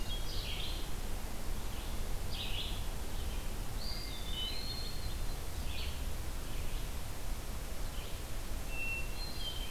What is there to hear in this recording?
Red-eyed Vireo, Eastern Wood-Pewee, Hermit Thrush